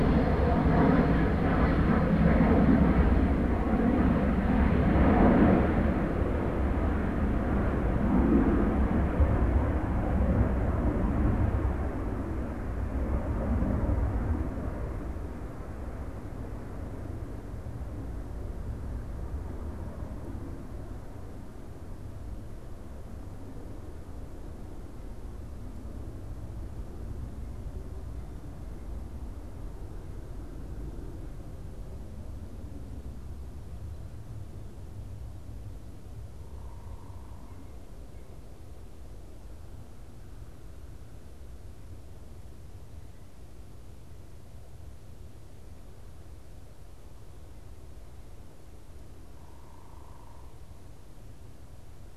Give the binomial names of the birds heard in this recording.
unidentified bird